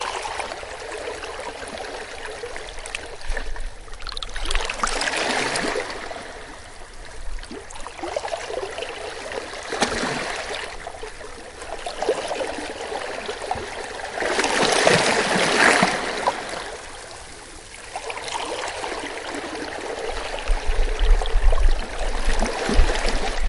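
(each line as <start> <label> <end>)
0.0 Waves washing ashore. 23.5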